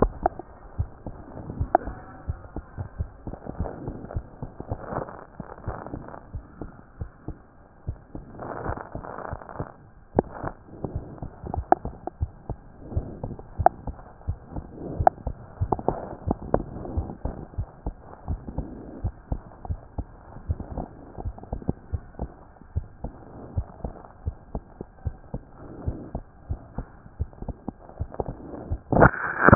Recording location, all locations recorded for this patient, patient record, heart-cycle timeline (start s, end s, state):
aortic valve (AV)
aortic valve (AV)+pulmonary valve (PV)
#Age: Child
#Sex: Female
#Height: 93.0 cm
#Weight: 13.0 kg
#Pregnancy status: False
#Murmur: Absent
#Murmur locations: nan
#Most audible location: nan
#Systolic murmur timing: nan
#Systolic murmur shape: nan
#Systolic murmur grading: nan
#Systolic murmur pitch: nan
#Systolic murmur quality: nan
#Diastolic murmur timing: nan
#Diastolic murmur shape: nan
#Diastolic murmur grading: nan
#Diastolic murmur pitch: nan
#Diastolic murmur quality: nan
#Outcome: Abnormal
#Campaign: 2014 screening campaign
0.00	17.58	unannotated
17.58	17.68	S1
17.68	17.84	systole
17.84	17.94	S2
17.94	18.30	diastole
18.30	18.40	S1
18.40	18.57	systole
18.57	18.66	S2
18.66	19.03	diastole
19.03	19.14	S1
19.14	19.30	systole
19.30	19.40	S2
19.40	19.68	diastole
19.68	19.80	S1
19.80	19.96	systole
19.96	20.06	S2
20.06	20.48	diastole
20.48	20.60	S1
20.60	20.76	systole
20.76	20.86	S2
20.86	21.22	diastole
21.22	21.34	S1
21.34	21.52	systole
21.52	21.62	S2
21.62	21.93	diastole
21.93	22.04	S1
22.04	22.20	systole
22.20	22.30	S2
22.30	22.74	diastole
22.74	22.86	S1
22.86	23.02	systole
23.02	23.12	S2
23.12	23.56	diastole
23.56	23.66	S1
23.66	23.84	systole
23.84	23.92	S2
23.92	24.24	diastole
24.24	24.36	S1
24.36	24.54	systole
24.54	24.64	S2
24.64	25.04	diastole
25.04	25.16	S1
25.16	25.32	systole
25.32	25.42	S2
25.42	25.86	diastole
25.86	25.98	S1
25.98	26.14	systole
26.14	26.22	S2
26.22	26.50	diastole
26.50	26.60	S1
26.60	26.76	systole
26.76	26.86	S2
26.86	27.18	diastole
27.18	27.30	S1
27.30	27.46	systole
27.46	27.56	S2
27.56	28.00	diastole
28.00	29.55	unannotated